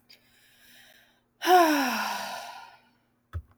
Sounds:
Sigh